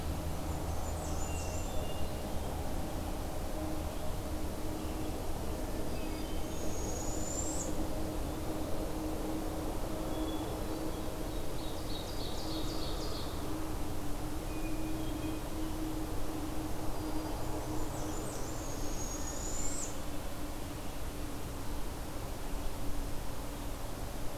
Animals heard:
Ovenbird (Seiurus aurocapilla), Barred Owl (Strix varia), Hermit Thrush (Catharus guttatus), Blackburnian Warbler (Setophaga fusca)

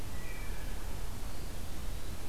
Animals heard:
Wood Thrush (Hylocichla mustelina), Eastern Wood-Pewee (Contopus virens)

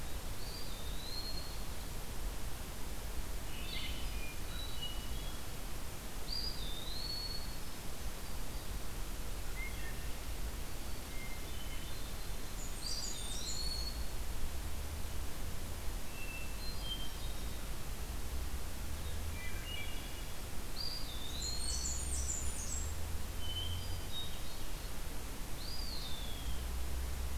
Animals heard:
Hermit Thrush (Catharus guttatus), Eastern Wood-Pewee (Contopus virens), Blue-headed Vireo (Vireo solitarius), Wood Thrush (Hylocichla mustelina), Blackburnian Warbler (Setophaga fusca)

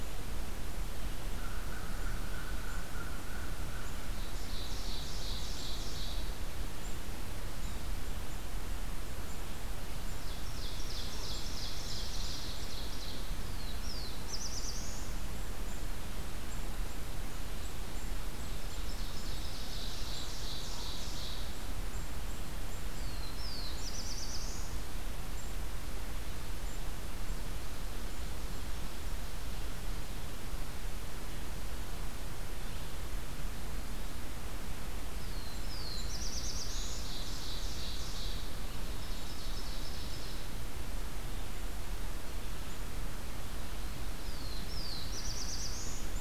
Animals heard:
Black-throated Blue Warbler (Setophaga caerulescens), Ovenbird (Seiurus aurocapilla), American Crow (Corvus brachyrhynchos)

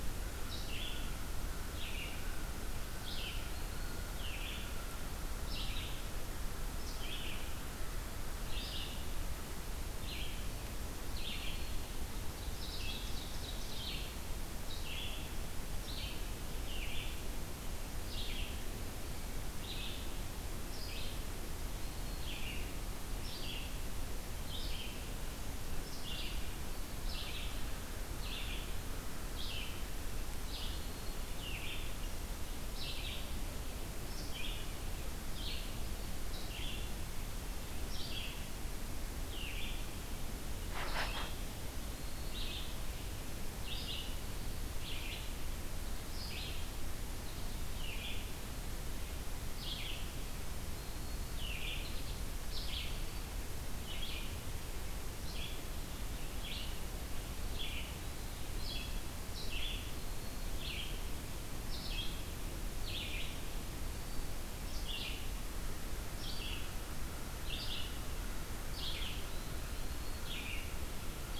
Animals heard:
Eastern Wood-Pewee (Contopus virens), Ovenbird (Seiurus aurocapilla), American Crow (Corvus brachyrhynchos), Red-eyed Vireo (Vireo olivaceus)

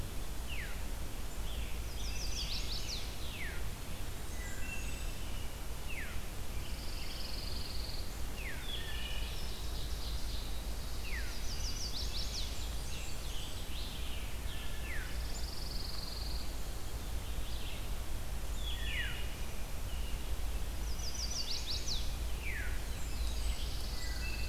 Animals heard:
Chestnut-sided Warbler (Setophaga pensylvanica), Wood Thrush (Hylocichla mustelina), Red-eyed Vireo (Vireo olivaceus), Scarlet Tanager (Piranga olivacea), Ovenbird (Seiurus aurocapilla), Pine Warbler (Setophaga pinus), Blackburnian Warbler (Setophaga fusca), Veery (Catharus fuscescens)

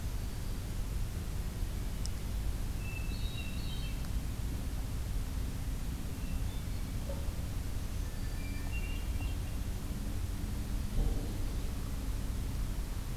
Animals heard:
Hermit Thrush (Catharus guttatus)

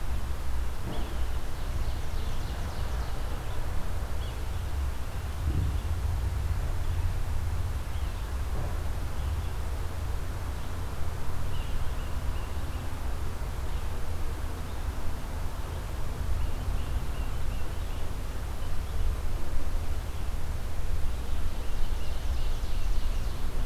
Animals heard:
Yellow-bellied Sapsucker (Sphyrapicus varius), Ovenbird (Seiurus aurocapilla), Tufted Titmouse (Baeolophus bicolor)

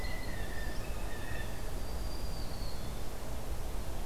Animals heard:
Blue Jay (Cyanocitta cristata), Black-throated Green Warbler (Setophaga virens)

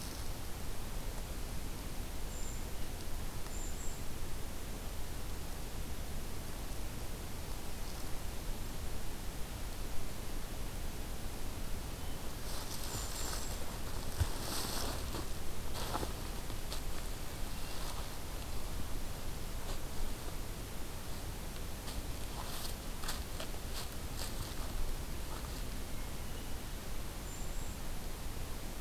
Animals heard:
Brown Creeper (Certhia americana), Hermit Thrush (Catharus guttatus)

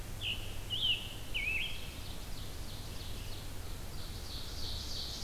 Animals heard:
Ovenbird (Seiurus aurocapilla), Scarlet Tanager (Piranga olivacea)

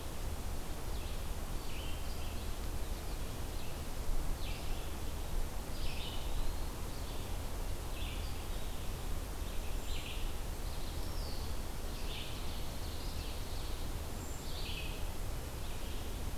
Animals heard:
Ovenbird (Seiurus aurocapilla), Brown Creeper (Certhia americana), Red-eyed Vireo (Vireo olivaceus), Eastern Wood-Pewee (Contopus virens)

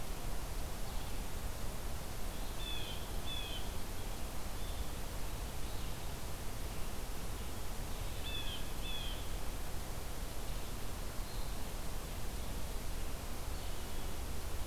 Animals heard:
Blue Jay (Cyanocitta cristata), Red-eyed Vireo (Vireo olivaceus)

